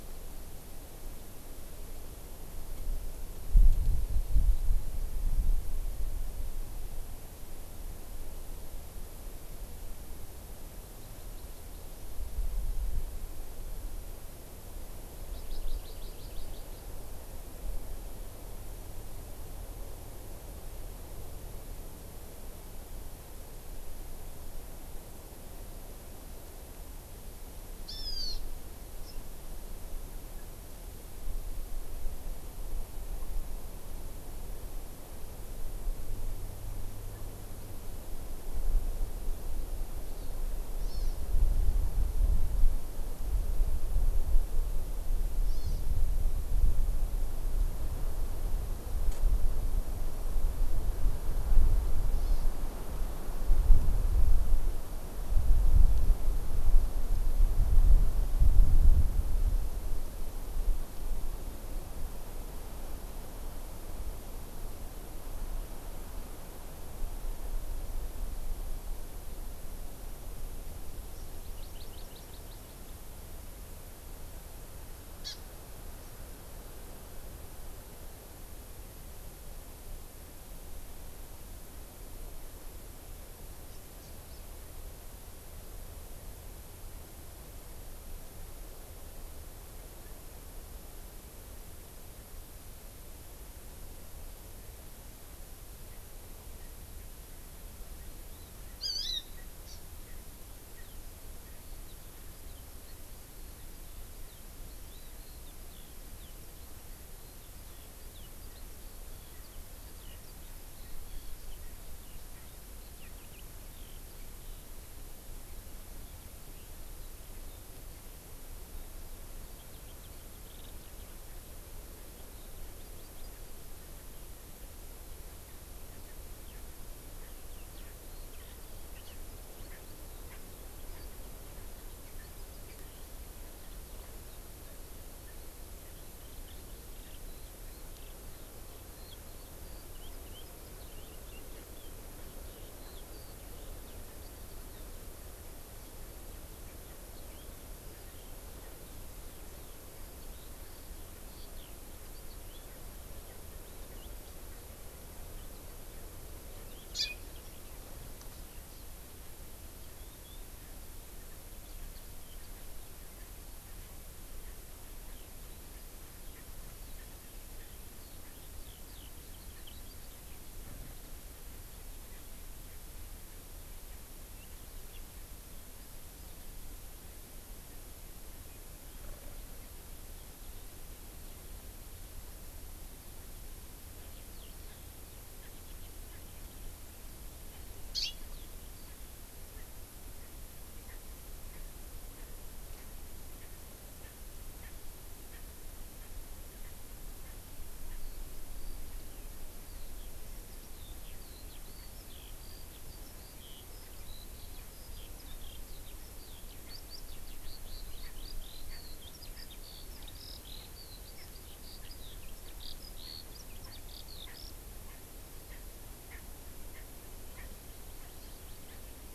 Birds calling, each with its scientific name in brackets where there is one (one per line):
Erckel's Francolin (Pternistis erckelii)
Eurasian Skylark (Alauda arvensis)
Hawaii Amakihi (Chlorodrepanis virens)
Hawaiian Hawk (Buteo solitarius)